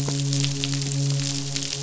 {"label": "biophony, midshipman", "recorder": "SoundTrap 500"}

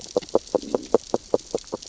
{"label": "biophony, grazing", "recorder": "SoundTrap 600 or HydroMoth"}
{"label": "biophony, growl", "recorder": "SoundTrap 600 or HydroMoth"}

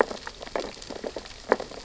{"label": "biophony, sea urchins (Echinidae)", "recorder": "SoundTrap 600 or HydroMoth"}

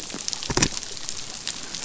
{"label": "biophony", "recorder": "SoundTrap 500"}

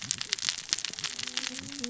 {"label": "biophony, cascading saw", "recorder": "SoundTrap 600 or HydroMoth"}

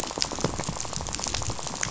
{"label": "biophony, rattle", "recorder": "SoundTrap 500"}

